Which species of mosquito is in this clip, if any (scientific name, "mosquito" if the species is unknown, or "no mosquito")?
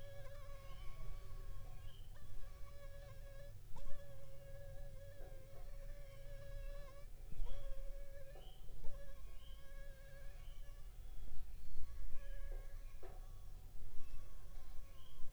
Anopheles funestus s.l.